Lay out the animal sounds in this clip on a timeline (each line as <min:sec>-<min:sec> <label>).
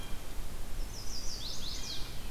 0:00.0-0:02.3 Blue Jay (Cyanocitta cristata)
0:00.5-0:02.2 Chestnut-sided Warbler (Setophaga pensylvanica)